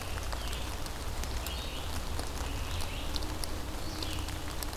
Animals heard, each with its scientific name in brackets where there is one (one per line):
Red-eyed Vireo (Vireo olivaceus)